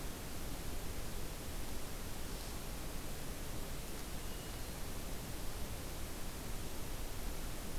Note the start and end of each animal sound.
3.9s-5.1s: Hermit Thrush (Catharus guttatus)

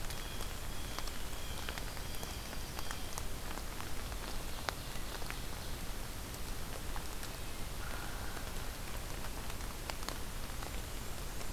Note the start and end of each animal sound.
0.0s-3.2s: Blue Jay (Cyanocitta cristata)
3.9s-5.8s: Ovenbird (Seiurus aurocapilla)
7.7s-8.7s: Hairy Woodpecker (Dryobates villosus)

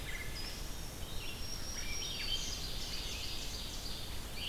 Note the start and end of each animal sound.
0.0s-1.0s: Wood Thrush (Hylocichla mustelina)
0.0s-4.5s: Red-eyed Vireo (Vireo olivaceus)
1.1s-2.6s: Black-throated Green Warbler (Setophaga virens)
1.7s-2.9s: Swainson's Thrush (Catharus ustulatus)
2.0s-4.3s: Ovenbird (Seiurus aurocapilla)

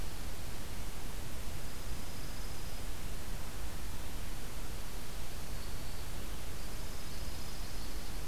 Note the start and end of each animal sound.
1.3s-3.0s: Dark-eyed Junco (Junco hyemalis)
6.5s-8.2s: Dark-eyed Junco (Junco hyemalis)

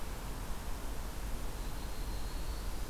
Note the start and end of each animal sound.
1.5s-2.9s: Prairie Warbler (Setophaga discolor)

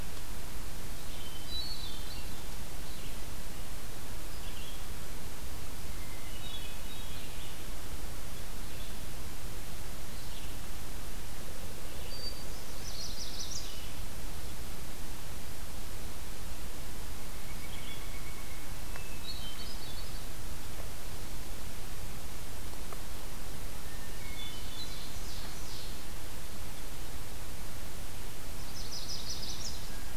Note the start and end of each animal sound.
0.0s-14.0s: Red-eyed Vireo (Vireo olivaceus)
1.0s-2.5s: Hermit Thrush (Catharus guttatus)
6.0s-7.3s: Hermit Thrush (Catharus guttatus)
12.1s-13.1s: Hermit Thrush (Catharus guttatus)
12.7s-13.8s: Chestnut-sided Warbler (Setophaga pensylvanica)
17.1s-18.9s: Pileated Woodpecker (Dryocopus pileatus)
17.5s-18.3s: Red-eyed Vireo (Vireo olivaceus)
18.9s-20.3s: Hermit Thrush (Catharus guttatus)
23.8s-25.2s: Hermit Thrush (Catharus guttatus)
24.5s-26.1s: Ovenbird (Seiurus aurocapilla)
28.5s-29.9s: Chestnut-sided Warbler (Setophaga pensylvanica)

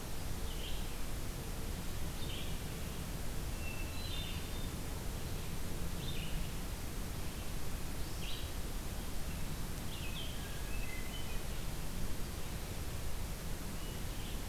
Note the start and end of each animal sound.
0.0s-14.5s: Red-eyed Vireo (Vireo olivaceus)
3.4s-4.8s: Hermit Thrush (Catharus guttatus)
10.3s-11.8s: Hermit Thrush (Catharus guttatus)

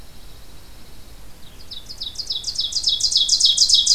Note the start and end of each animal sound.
0.0s-1.2s: Pine Warbler (Setophaga pinus)
0.0s-3.9s: Red-eyed Vireo (Vireo olivaceus)
1.3s-3.9s: Ovenbird (Seiurus aurocapilla)

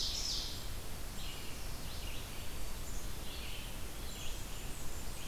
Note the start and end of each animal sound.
0.0s-0.8s: Ovenbird (Seiurus aurocapilla)
0.0s-5.3s: Red-eyed Vireo (Vireo olivaceus)
1.7s-3.2s: Black-throated Green Warbler (Setophaga virens)
4.1s-5.3s: Blackburnian Warbler (Setophaga fusca)

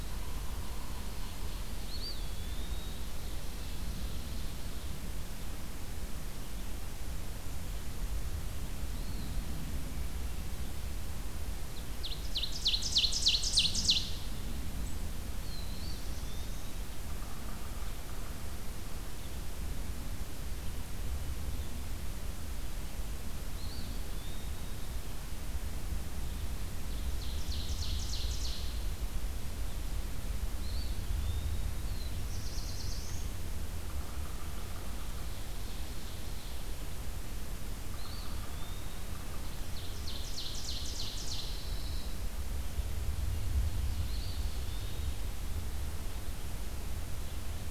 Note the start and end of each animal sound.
1.8s-3.0s: Eastern Wood-Pewee (Contopus virens)
2.6s-4.6s: Ovenbird (Seiurus aurocapilla)
8.8s-9.5s: Eastern Wood-Pewee (Contopus virens)
11.4s-14.4s: Ovenbird (Seiurus aurocapilla)
15.3s-16.8s: Black-throated Blue Warbler (Setophaga caerulescens)
15.4s-16.4s: Eastern Wood-Pewee (Contopus virens)
23.4s-24.6s: Eastern Wood-Pewee (Contopus virens)
27.1s-28.9s: Ovenbird (Seiurus aurocapilla)
30.6s-31.7s: Eastern Wood-Pewee (Contopus virens)
31.8s-33.3s: Black-throated Blue Warbler (Setophaga caerulescens)
33.7s-35.0s: Yellow-bellied Sapsucker (Sphyrapicus varius)
35.0s-36.7s: Ovenbird (Seiurus aurocapilla)
37.8s-38.6s: Yellow-bellied Sapsucker (Sphyrapicus varius)
37.9s-39.1s: Eastern Wood-Pewee (Contopus virens)
39.3s-41.7s: Ovenbird (Seiurus aurocapilla)
40.8s-42.1s: Pine Warbler (Setophaga pinus)
44.0s-45.1s: Eastern Wood-Pewee (Contopus virens)

